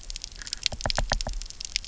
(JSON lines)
{"label": "biophony, knock", "recorder": "SoundTrap 300"}